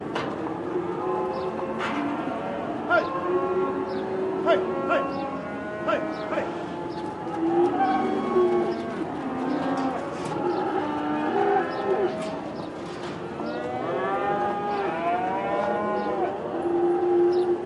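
Cows are continuously mooing as metallic doors open and close a couple of times, with a person occasionally calling out. 0:00.0 - 0:17.7

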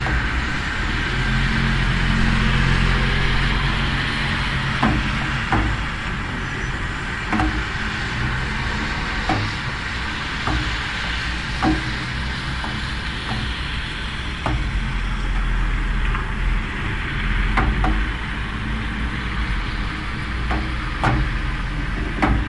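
Industrial and motorway sounds in the background. 0:00.0 - 0:22.5
A loud machine is running in the background. 0:01.4 - 0:03.6
Objects hitting one another. 0:04.8 - 0:05.8
Objects hitting one another. 0:07.2 - 0:07.6
Objects hitting one another. 0:09.2 - 0:09.7
Objects hitting one another. 0:10.4 - 0:10.7
Objects hitting one another. 0:11.5 - 0:11.9
Objects hitting one another. 0:14.4 - 0:14.7
Objects hitting one another. 0:17.4 - 0:18.3
Objects hitting one another. 0:20.3 - 0:21.3
Objects hitting one another. 0:22.1 - 0:22.5

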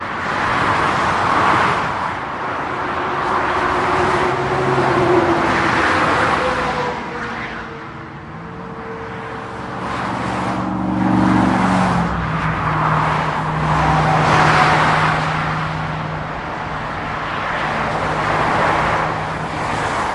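High-speed cars zoom past underneath an overpass, producing whooshing sounds. 0:00.0 - 0:20.1

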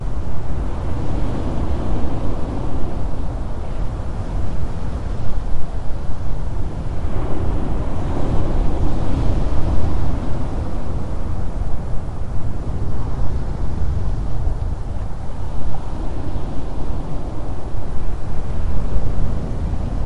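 Sea waves crashing on the shore. 0:00.0 - 0:06.6
Wind whooshing. 0:00.0 - 0:06.6
Two sea waves crash onto the shore back-to-back. 0:07.0 - 0:13.3
Wind whooshes in the background. 0:07.0 - 0:13.3
Wind whooshing on the seashore. 0:13.7 - 0:20.1

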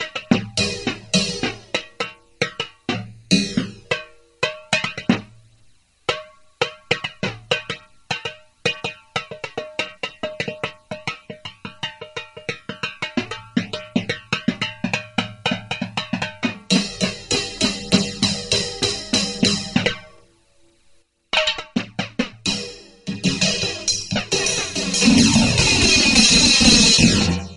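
A drum set is playing. 0:00.0 - 0:05.4
A drum set is playing. 0:06.0 - 0:20.1
A drum set is playing. 0:21.3 - 0:27.6

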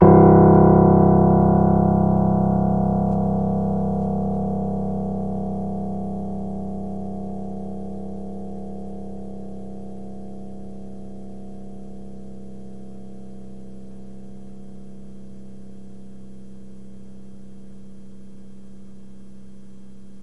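A loud piano note fades away. 0:00.0 - 0:20.2

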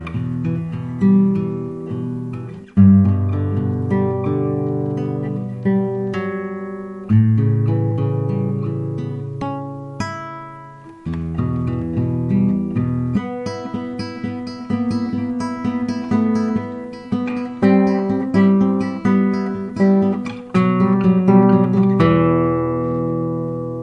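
A guitar plays rhythmically. 0:00.0 - 0:23.8

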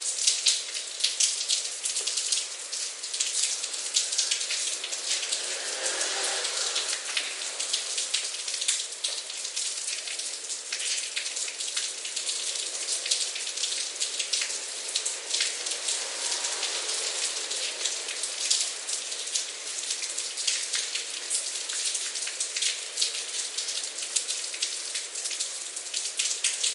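Cars driving quietly and sparsely in the background. 0:00.0 - 0:26.7
Rain splashing. 0:00.0 - 0:26.7
Someone is breathing in and out. 0:05.7 - 0:07.1

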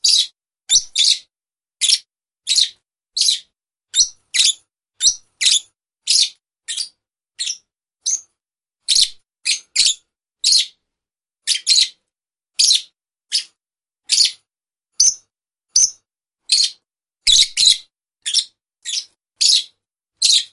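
A bird chirps at a high frequency indoors. 0:00.0 - 0:01.2
A bird chirps at a high frequency indoors. 0:01.8 - 0:08.2
A bird chirps at a high frequency indoors. 0:08.9 - 0:10.8
A bird chirps at a high frequency indoors. 0:11.4 - 0:11.9
A bird chirps at a high frequency indoors. 0:12.6 - 0:13.5
A bird chirps at a high frequency indoors. 0:14.1 - 0:14.4
A bird chirps at a high frequency indoors. 0:15.0 - 0:20.5

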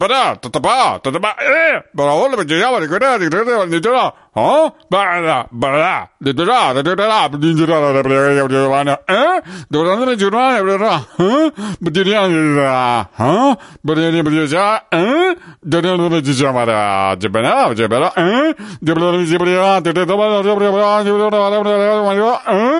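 A man speaks continuously in a self-invented language with varying volume. 0:00.0 - 0:22.8

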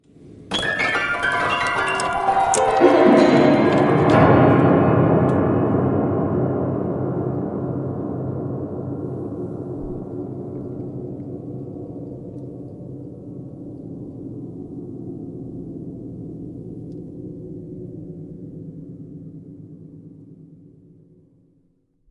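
Haunting piano music plays. 0:00.5 - 0:05.2
An echo follows the piano playing. 0:05.3 - 0:19.4

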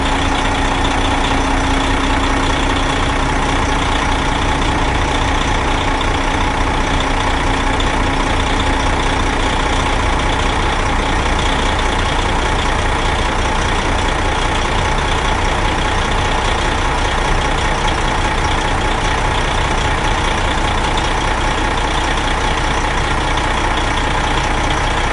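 A diesel engine running continuously with a loud, low-pitched, monotonous sound. 0:00.0 - 0:25.1

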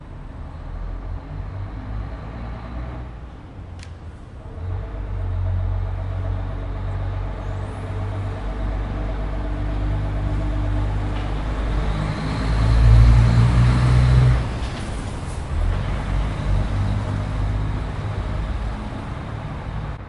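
Truck engine sound increases and then fades. 0:00.0 - 0:20.1

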